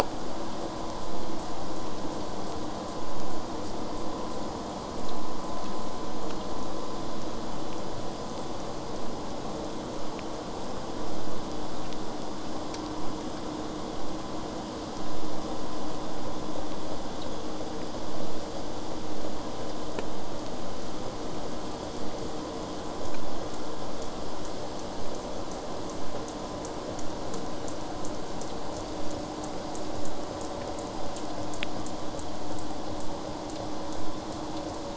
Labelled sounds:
14.0	19.0	vessel noise, 0 to 8.0 kHz

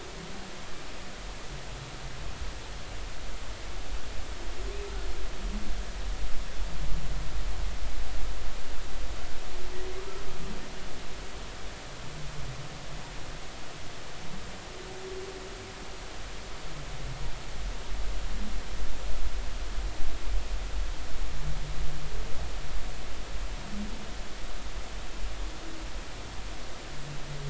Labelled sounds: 10.0	10.2	humpback whale, 1.1 to 1.4 kHz

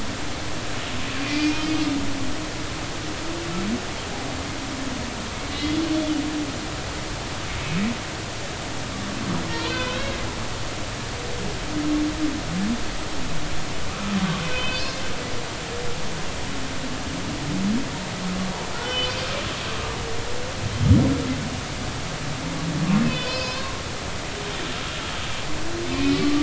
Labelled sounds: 1.2	1.6	humpback whale, 2.0 to 2.6 kHz
5.5	5.8	humpback whale, 2.0 to 2.1 kHz
9.5	10.2	humpback whale, 1.4 to 4.7 kHz
14.5	15.0	humpback whale, 3.0 to 4.8 kHz
15.4	15.9	humpback whale, 2.5 to 2.7 kHz
18.7	19.3	humpback whale, 1.3 to 5.6 kHz
23.0	23.7	humpback whale, 0.96 to 5.2 kHz
25.9	26.4	humpback whale, 1.1 to 2.6 kHz

